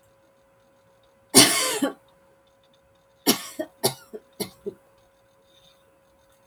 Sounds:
Cough